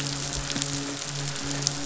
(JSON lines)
{"label": "biophony, midshipman", "recorder": "SoundTrap 500"}